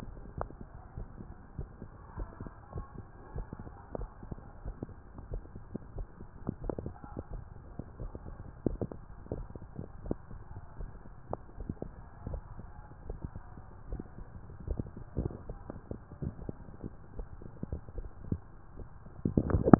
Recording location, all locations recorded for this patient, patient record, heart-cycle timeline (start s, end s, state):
tricuspid valve (TV)
pulmonary valve (PV)+tricuspid valve (TV)+mitral valve (MV)
#Age: nan
#Sex: Female
#Height: nan
#Weight: nan
#Pregnancy status: True
#Murmur: Absent
#Murmur locations: nan
#Most audible location: nan
#Systolic murmur timing: nan
#Systolic murmur shape: nan
#Systolic murmur grading: nan
#Systolic murmur pitch: nan
#Systolic murmur quality: nan
#Diastolic murmur timing: nan
#Diastolic murmur shape: nan
#Diastolic murmur grading: nan
#Diastolic murmur pitch: nan
#Diastolic murmur quality: nan
#Outcome: Normal
#Campaign: 2015 screening campaign
0.00	1.94	unannotated
1.94	2.18	diastole
2.18	2.28	S1
2.28	2.40	systole
2.40	2.50	S2
2.50	2.72	diastole
2.72	2.86	S1
2.86	2.94	systole
2.94	3.08	S2
3.08	3.32	diastole
3.32	3.46	S1
3.46	3.62	systole
3.62	3.72	S2
3.72	3.98	diastole
3.98	4.10	S1
4.10	4.28	systole
4.28	4.38	S2
4.38	4.66	diastole
4.66	4.76	S1
4.76	4.88	systole
4.88	5.08	S2
5.08	5.30	diastole
5.30	5.42	S1
5.42	5.54	systole
5.54	5.62	S2
5.62	5.95	diastole
5.95	6.08	S1
6.08	6.19	systole
6.19	6.29	S2
6.29	6.62	diastole
6.62	6.71	S1
6.71	6.83	systole
6.83	6.92	S2
6.92	7.30	diastole
7.30	7.42	S1
7.42	7.52	systole
7.52	7.64	S2
7.64	8.02	diastole
8.02	8.12	S1
8.12	8.26	systole
8.26	8.36	S2
8.36	8.66	diastole
8.66	8.80	S1
8.80	8.93	systole
8.93	9.04	S2
9.04	9.33	diastole
9.33	9.46	S1
9.46	9.55	systole
9.55	9.66	S2
9.66	10.02	diastole
10.02	10.18	S1
10.18	10.32	systole
10.32	10.42	S2
10.42	10.78	diastole
10.78	19.79	unannotated